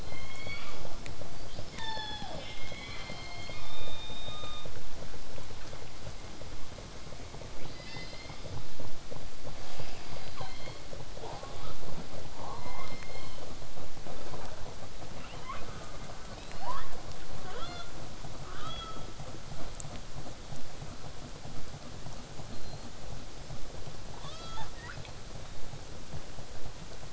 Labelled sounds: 0.0	1.3	killer whale, southern resident, J pod, call S03, 0.40 to 5.8 kHz
1.5	2.5	killer whale, southern resident, L pod, call S36, 0.18 to 7.2 kHz
2.5	4.7	killer whale, southern resident, 1.0 to 6.4 kHz
4.7	7.5	vessel noise, 0 to 8.0 kHz
7.6	8.7	killer whale, southern resident, 1.8 to 5.6 kHz
9.6	10.8	killer whale, southern resident, call S37ii, 0.33 to 5.2 kHz
11.2	11.8	killer whale, southern resident, J pod, call S04, 0.18 to 5.5 kHz
12.4	12.9	killer whale, southern resident, J pod, call S04, 0.11 to 1.6 kHz
16.3	17.1	killer whale, southern resident, L pod, call S19, 0.25 to 5.4 kHz
17.4	18.0	killer whale, southern resident, L pod, call S18, 0.18 to 6.4 kHz
18.4	19.2	killer whale, southern resident, L pod, call S18, 0.98 to 6.3 kHz
22.5	22.9	killer whale, southern resident, whistle, 4.0 to 4.4 kHz
24.2	25.1	killer whale, southern resident, 0.43 to 8.0 kHz

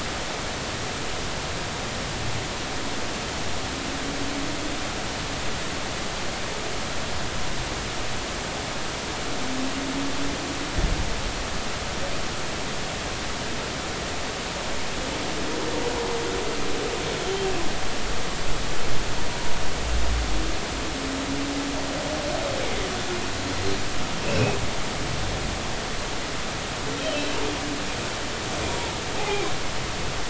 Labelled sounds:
17.2	17.5	humpback whale, 3.1 to 3.2 kHz
24.2	24.6	humpback whale, 2.4 to 2.8 kHz
28.7	28.9	humpback whale, 0.86 to 0.99 kHz
29.2	29.5	humpback whale, 0.80 to 2.6 kHz

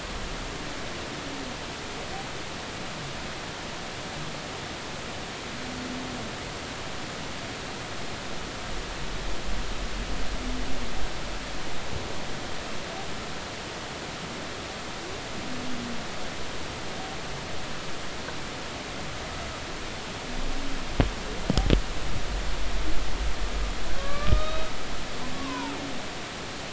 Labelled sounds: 24.0	24.7	humpback whale, 1.1 to 3.9 kHz
25.3	25.7	humpback whale, 0.83 to 2.6 kHz

